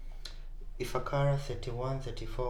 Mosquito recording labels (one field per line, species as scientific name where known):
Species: Culex pipiens complex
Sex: female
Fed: unfed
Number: one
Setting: cup